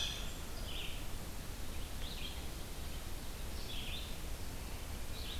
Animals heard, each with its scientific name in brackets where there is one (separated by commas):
Red-eyed Vireo (Vireo olivaceus)